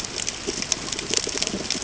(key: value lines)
label: ambient
recorder: HydroMoth